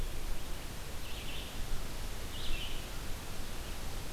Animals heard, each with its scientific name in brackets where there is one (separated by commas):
Red-eyed Vireo (Vireo olivaceus)